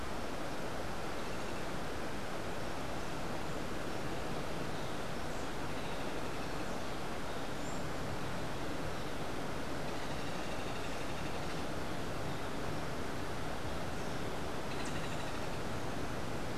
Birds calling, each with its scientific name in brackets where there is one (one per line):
Hoffmann's Woodpecker (Melanerpes hoffmannii)